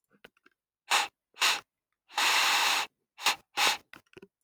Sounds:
Sniff